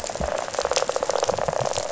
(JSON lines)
{"label": "biophony, rattle", "recorder": "SoundTrap 500"}